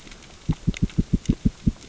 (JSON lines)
{"label": "biophony, knock", "recorder": "SoundTrap 600 or HydroMoth"}